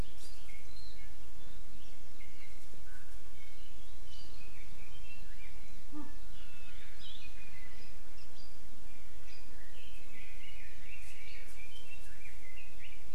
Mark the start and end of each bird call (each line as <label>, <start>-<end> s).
Red-billed Leiothrix (Leiothrix lutea), 9.7-13.1 s